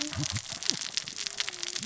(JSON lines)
{"label": "biophony, cascading saw", "recorder": "SoundTrap 600 or HydroMoth"}